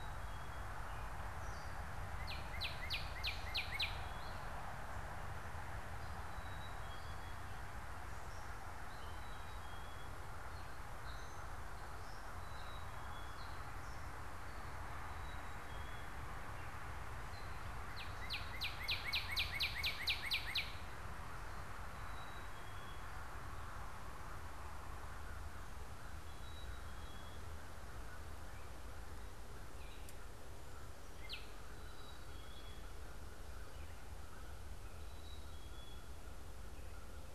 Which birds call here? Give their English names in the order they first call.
Gray Catbird, Black-capped Chickadee, Northern Cardinal, American Crow